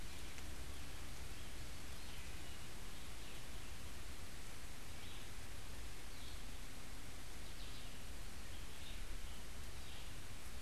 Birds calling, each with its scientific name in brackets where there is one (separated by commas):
Red-eyed Vireo (Vireo olivaceus)